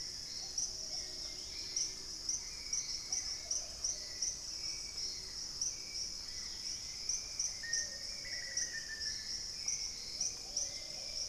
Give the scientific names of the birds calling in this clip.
Turdus hauxwelli, Patagioenas plumbea, Pachysylvia hypoxantha, Formicarius analis